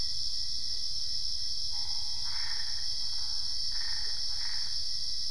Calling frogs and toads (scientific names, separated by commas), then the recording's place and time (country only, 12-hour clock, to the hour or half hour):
Boana albopunctata
Brazil, ~10pm